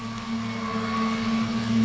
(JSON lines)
{"label": "anthrophony, boat engine", "recorder": "SoundTrap 500"}